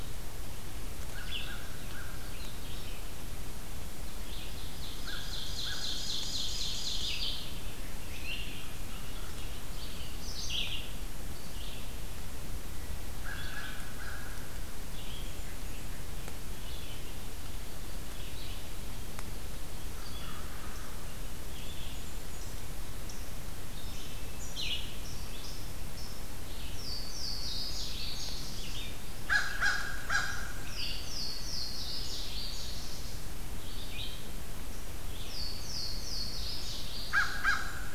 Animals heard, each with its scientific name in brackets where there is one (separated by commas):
American Crow (Corvus brachyrhynchos), Ovenbird (Seiurus aurocapilla), Louisiana Waterthrush (Parkesia motacilla), Blackburnian Warbler (Setophaga fusca), Red-eyed Vireo (Vireo olivaceus)